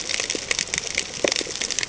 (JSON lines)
{"label": "ambient", "recorder": "HydroMoth"}